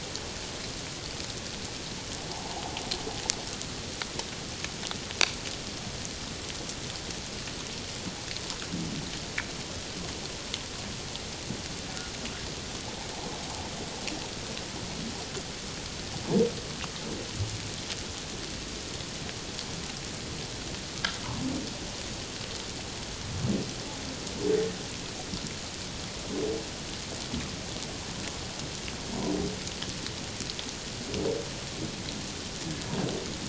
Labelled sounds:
2.3	2.6	humpback whale, 0.78 to 1.1 kHz

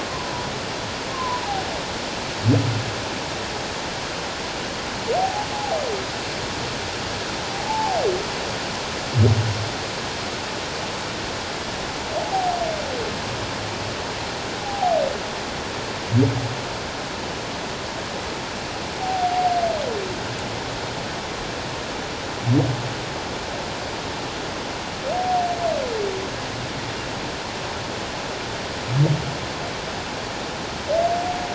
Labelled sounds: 1.1	1.4	humpback whale, 0.88 to 1.1 kHz
5.2	5.8	humpback whale, 0.78 to 0.91 kHz
7.5	8.0	humpback whale, 0.78 to 0.94 kHz
14.6	15.0	humpback whale, 0.78 to 0.88 kHz
19.0	19.5	humpback whale, 0.78 to 0.84 kHz

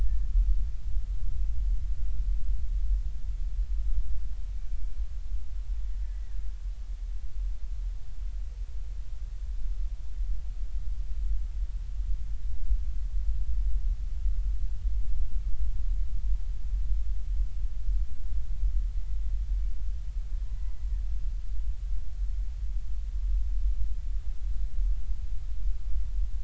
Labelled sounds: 0.0	0.3	killer whale, Bigg's (transient), 1.7 to 1.9 kHz
6.0	6.4	killer whale, Bigg's (transient), 1.6 to 2.0 kHz

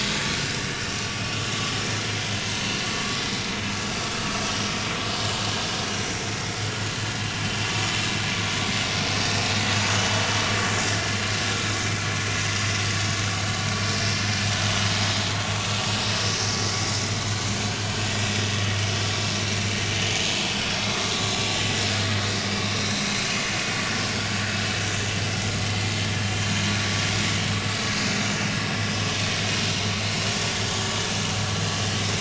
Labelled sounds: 21.5	21.9	vessel noise, 1.9 to 2.0 kHz

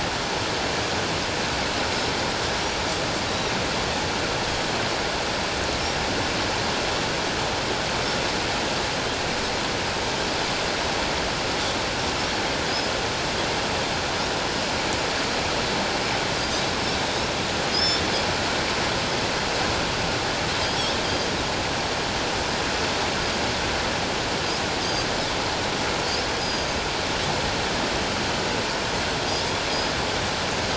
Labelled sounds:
17.7	18.0	Pacific white-sided dolphin, 3.3 to 5.5 kHz
21.0	21.3	Pacific white-sided dolphin, 3.1 to 3.3 kHz
26.4	26.8	Pacific white-sided dolphin, 4.8 to 8.0 kHz

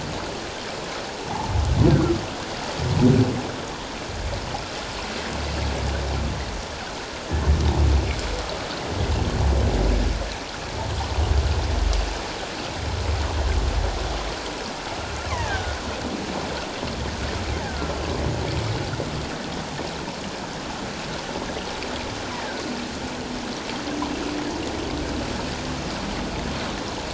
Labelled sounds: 1.9	2.2	killer whale, offshore, call OFF17, 1.2 to 1.7 kHz
15.3	15.8	killer whale, offshore, call OFF17, 1.4 to 2.4 kHz
17.6	17.9	killer whale, offshore, call OFF17, 1.3 to 2.0 kHz
22.3	22.6	killer whale, offshore, call OFF17, 1.4 to 2.0 kHz

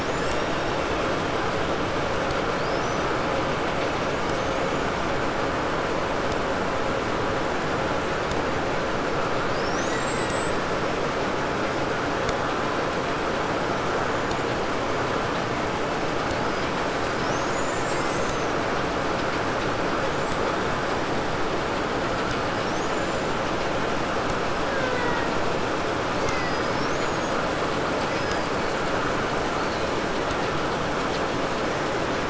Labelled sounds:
0.0	1.3	killer whale, Bigg's (transient), call T02, 1.5 to 8.0 kHz
2.2	3.2	killer whale, 3.5 to 6.3 kHz
4.1	4.9	killer whale, 4.9 to 7.5 kHz
9.2	11.2	killer whale, Bigg's (transient), 0.92 to 8.0 kHz
16.8	18.6	killer whale, Bigg's (transient), 1.3 to 8.0 kHz
19.5	21.2	killer whale, 3.8 to 8.0 kHz
22.3	23.6	killer whale, 3.0 to 7.6 kHz
24.5	25.6	killer whale, Bigg's (transient), 0.27 to 2.4 kHz
26.1	27.4	killer whale, Bigg's (transient), 0.93 to 7.2 kHz
27.9	28.4	killer whale, Bigg's (transient), 1.3 to 5.3 kHz
29.4	29.9	killer whale, 3.2 to 4.7 kHz

